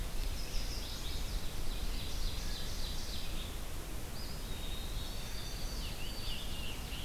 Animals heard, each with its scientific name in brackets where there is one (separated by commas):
Chestnut-sided Warbler (Setophaga pensylvanica), Eastern Wood-Pewee (Contopus virens), Ovenbird (Seiurus aurocapilla), Scarlet Tanager (Piranga olivacea), White-throated Sparrow (Zonotrichia albicollis), Red-eyed Vireo (Vireo olivaceus)